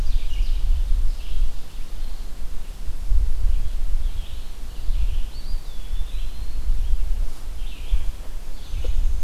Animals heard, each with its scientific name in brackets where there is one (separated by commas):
Eastern Wood-Pewee (Contopus virens), Black-and-white Warbler (Mniotilta varia), Ovenbird (Seiurus aurocapilla), Red-eyed Vireo (Vireo olivaceus)